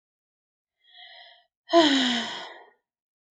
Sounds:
Sigh